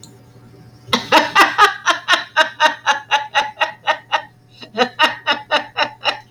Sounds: Laughter